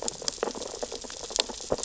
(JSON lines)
{"label": "biophony, sea urchins (Echinidae)", "recorder": "SoundTrap 600 or HydroMoth"}